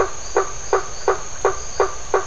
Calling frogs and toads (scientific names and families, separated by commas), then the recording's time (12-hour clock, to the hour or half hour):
Adenomera marmorata (Leptodactylidae), Boana faber (Hylidae)
7:30pm